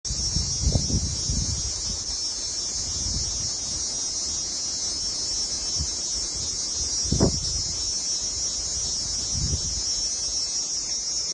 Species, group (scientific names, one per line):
Thopha saccata
Cicadidae